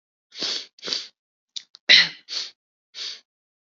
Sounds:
Sniff